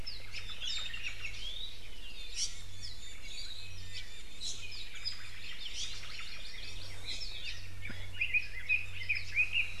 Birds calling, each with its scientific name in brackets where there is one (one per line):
Iiwi (Drepanis coccinea)
Apapane (Himatione sanguinea)
Omao (Myadestes obscurus)
Red-billed Leiothrix (Leiothrix lutea)
Hawaii Amakihi (Chlorodrepanis virens)